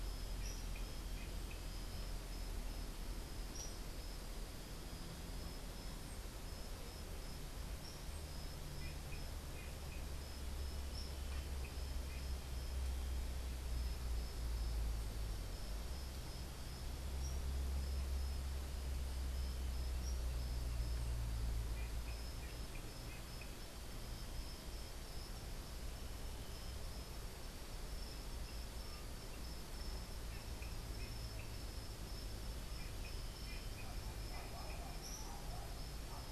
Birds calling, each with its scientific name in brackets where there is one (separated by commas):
Tropical Kingbird (Tyrannus melancholicus)